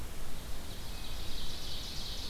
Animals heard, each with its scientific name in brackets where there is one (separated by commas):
Ovenbird (Seiurus aurocapilla)